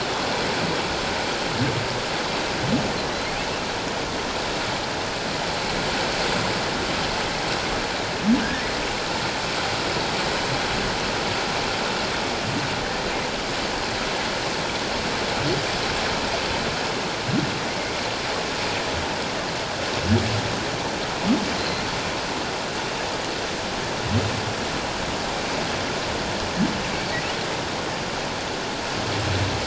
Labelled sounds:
21.6	21.8	humpback whale, 4.0 to 4.3 kHz

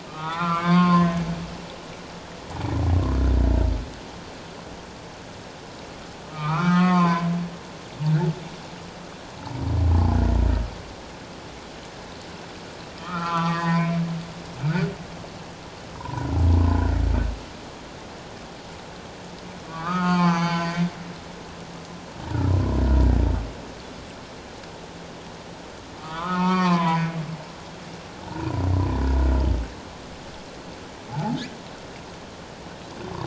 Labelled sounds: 0.1	1.3	humpback whale, 0.78 to 4.8 kHz
6.3	7.3	humpback whale, 0.84 to 4.9 kHz
9.4	10.2	humpback whale, 0.78 to 1.0 kHz
13.0	13.9	humpback whale, 0.94 to 4.8 kHz
16.0	17.0	humpback whale, 0.84 to 1.6 kHz
19.7	20.8	humpback whale, 0.78 to 6.3 kHz
26.0	27.2	humpback whale, 0.78 to 3.6 kHz
28.3	28.6	humpback whale, 0.88 to 1.1 kHz
31.1	31.4	humpback whale, 0.78 to 0.94 kHz

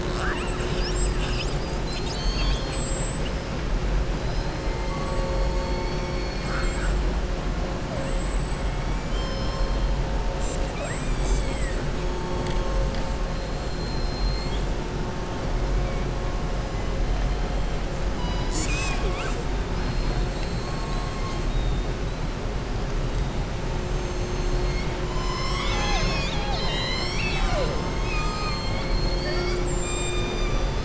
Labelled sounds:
5.5	6.9	killer whale, southern resident, 1.2 to 5.9 kHz
10.6	11.8	killer whale, southern resident, 0.70 to 7.9 kHz
13.6	14.7	killer whale, southern resident, 3.2 to 5.3 kHz

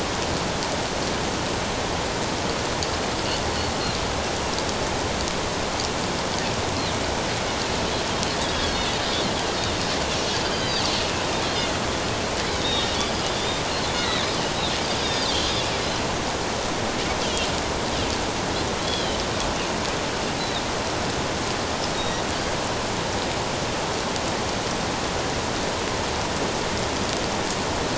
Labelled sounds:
8.6	8.9	Pacific white-sided dolphin, 4.2 to 4.5 kHz
10.3	10.9	Pacific white-sided dolphin, 4.3 to 4.9 kHz
12.5	12.9	Pacific white-sided dolphin, 3.4 to 3.8 kHz
13.3	14.3	Pacific white-sided dolphin, 1.7 to 4.0 kHz
15.0	15.5	Pacific white-sided dolphin, 3.1 to 3.8 kHz
18.9	19.2	Pacific white-sided dolphin, 2.9 to 3.4 kHz
20.4	20.6	Pacific white-sided dolphin, 3.5 to 4.1 kHz
22.0	22.2	Pacific white-sided dolphin, 3.7 to 3.8 kHz

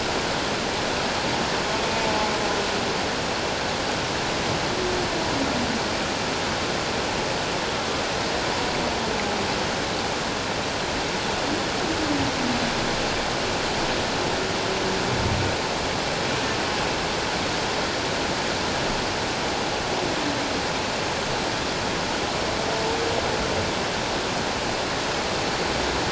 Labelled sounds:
2.0	2.3	humpback whale, 0.81 to 0.94 kHz

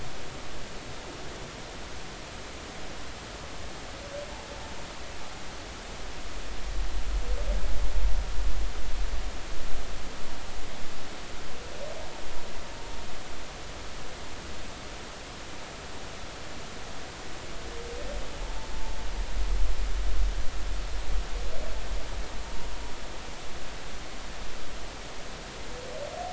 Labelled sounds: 18.4	18.7	humpback whale, 0.83 to 0.93 kHz

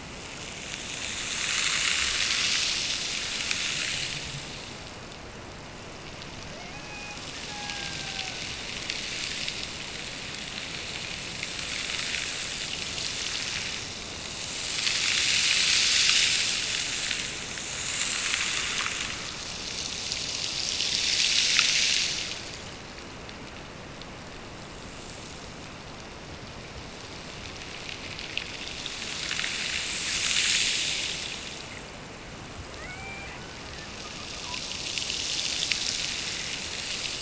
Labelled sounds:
6.4	8.5	killer whale, Bigg's (transient), Gulf of Alaska transient, 0.36 to 2.7 kHz
32.7	34.0	killer whale, Bigg's (transient), Gulf of Alaska transient, 0.39 to 2.4 kHz

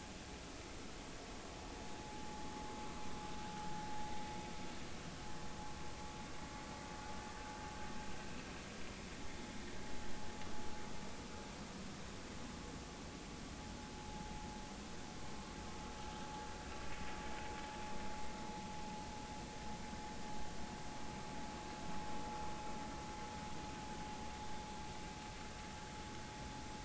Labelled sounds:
2.0	2.3	vessel noise, 0.80 to 0.90 kHz
13.9	14.3	vessel noise, 0.80 to 0.90 kHz

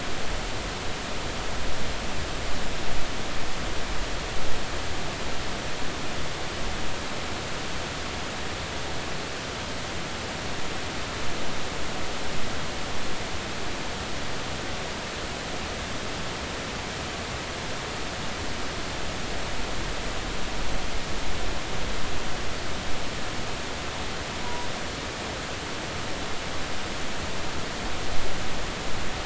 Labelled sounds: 24.4	24.7	vessel noise, 0.93 to 1.0 kHz

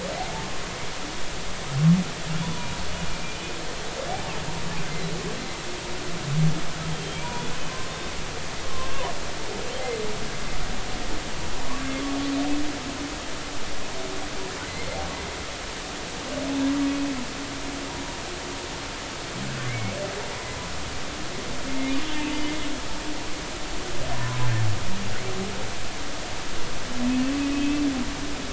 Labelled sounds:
2.4	3.6	humpback whale, 0.93 to 2.5 kHz
6.9	7.4	humpback whale, 2.2 to 3.3 kHz
7.7	9.1	humpback whale, 0.93 to 1.2 kHz
11.8	12.1	humpback whale, 3.3 to 3.6 kHz
19.6	20.0	humpback whale, 2.0 to 2.3 kHz
22.3	22.5	humpback whale, 4.7 to 4.9 kHz
24.1	24.4	humpback whale, 0.93 to 1.1 kHz
27.5	27.8	humpback whale, 2.5 to 2.7 kHz

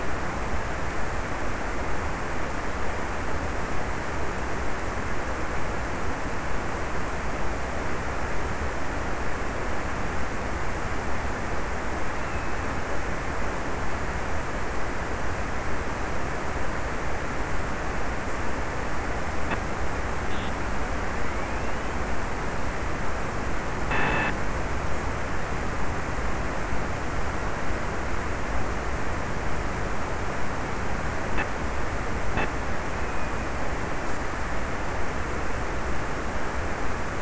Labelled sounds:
11.9	13.3	killer whale, offshore, 2.1 to 2.8 kHz
32.8	34.2	killer whale, offshore, 2.1 to 2.7 kHz

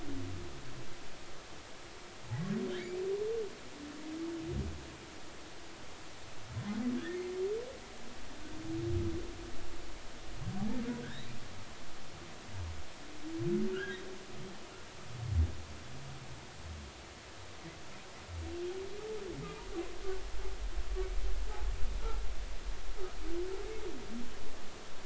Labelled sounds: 2.7	3.0	humpback whale, 1.6 to 2.4 kHz
11.0	11.3	humpback whale, 1.4 to 2.0 kHz
13.7	14.0	humpback whale, 1.3 to 3.3 kHz

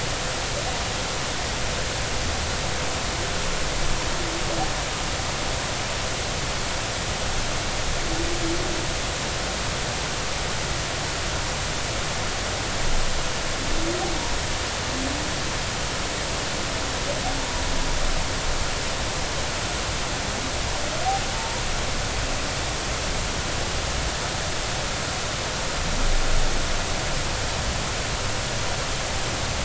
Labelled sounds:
21.4	21.6	humpback whale, 0.86 to 0.99 kHz

